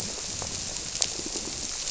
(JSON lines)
{"label": "biophony", "recorder": "SoundTrap 300"}